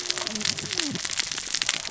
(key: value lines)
label: biophony, cascading saw
recorder: SoundTrap 600 or HydroMoth